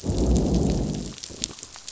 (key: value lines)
label: biophony, growl
recorder: SoundTrap 500